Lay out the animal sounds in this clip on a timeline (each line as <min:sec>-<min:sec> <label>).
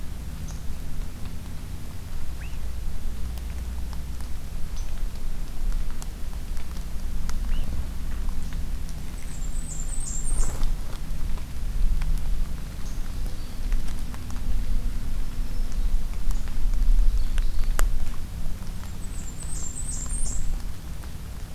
0:00.4-0:00.6 unidentified call
0:02.3-0:02.6 Swainson's Thrush (Catharus ustulatus)
0:04.7-0:04.9 unidentified call
0:07.5-0:07.7 Swainson's Thrush (Catharus ustulatus)
0:09.2-0:10.6 Blackburnian Warbler (Setophaga fusca)
0:12.9-0:13.7 Black-throated Green Warbler (Setophaga virens)
0:14.9-0:16.0 Black-throated Green Warbler (Setophaga virens)
0:16.9-0:17.8 Ovenbird (Seiurus aurocapilla)
0:18.8-0:20.6 Blackburnian Warbler (Setophaga fusca)